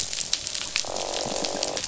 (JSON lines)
{"label": "biophony, croak", "recorder": "SoundTrap 500"}
{"label": "biophony", "recorder": "SoundTrap 500"}